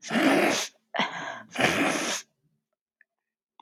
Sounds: Throat clearing